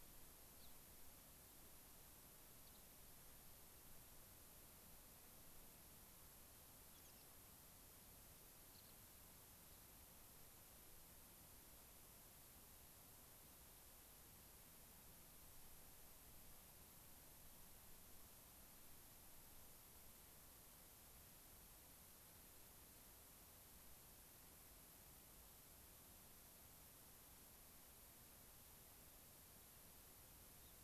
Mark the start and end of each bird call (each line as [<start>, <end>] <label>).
[0.51, 0.71] Gray-crowned Rosy-Finch (Leucosticte tephrocotis)
[2.61, 2.81] Gray-crowned Rosy-Finch (Leucosticte tephrocotis)
[6.91, 7.31] American Pipit (Anthus rubescens)
[8.71, 8.91] Gray-crowned Rosy-Finch (Leucosticte tephrocotis)
[30.61, 30.71] unidentified bird